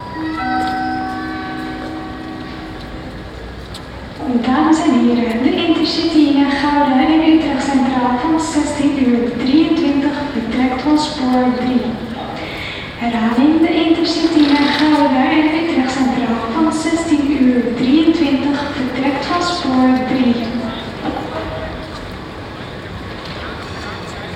Does the recording start with a chime?
yes